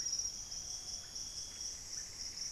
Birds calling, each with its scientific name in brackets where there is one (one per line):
unidentified bird
Russet-backed Oropendola (Psarocolius angustifrons)